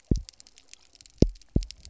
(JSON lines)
{"label": "biophony, double pulse", "recorder": "SoundTrap 300"}